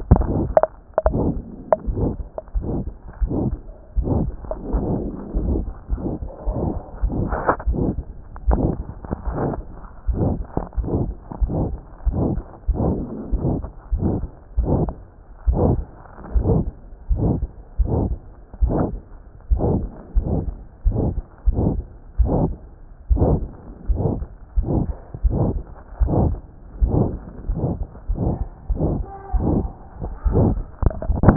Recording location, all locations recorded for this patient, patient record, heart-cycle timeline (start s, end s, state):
pulmonary valve (PV)
aortic valve (AV)+pulmonary valve (PV)+tricuspid valve (TV)+mitral valve (MV)
#Age: Child
#Sex: Female
#Height: 136.0 cm
#Weight: 26.3 kg
#Pregnancy status: False
#Murmur: Present
#Murmur locations: aortic valve (AV)+mitral valve (MV)+pulmonary valve (PV)+tricuspid valve (TV)
#Most audible location: mitral valve (MV)
#Systolic murmur timing: Mid-systolic
#Systolic murmur shape: Diamond
#Systolic murmur grading: III/VI or higher
#Systolic murmur pitch: High
#Systolic murmur quality: Harsh
#Diastolic murmur timing: nan
#Diastolic murmur shape: nan
#Diastolic murmur grading: nan
#Diastolic murmur pitch: nan
#Diastolic murmur quality: nan
#Outcome: Abnormal
#Campaign: 2014 screening campaign
0.00	1.88	unannotated
1.88	1.94	S1
1.94	2.19	systole
2.19	2.27	S2
2.27	2.56	diastole
2.56	2.64	S1
2.64	2.85	systole
2.85	2.92	S2
2.92	3.20	diastole
3.20	3.29	S1
3.29	3.50	systole
3.50	3.56	S2
3.56	3.98	diastole
3.98	4.06	S1
4.06	4.25	systole
4.25	4.32	S2
4.32	4.72	diastole
4.72	4.81	S1
4.81	5.02	systole
5.02	5.09	S2
5.09	5.37	diastole
5.37	5.45	S1
5.45	5.67	systole
5.67	5.74	S2
5.74	5.92	diastole
5.92	6.00	S1
6.00	6.22	systole
6.22	6.28	S2
6.28	6.46	diastole
6.46	6.54	S1
6.54	6.73	systole
6.73	6.80	S2
6.80	7.02	diastole
7.02	31.36	unannotated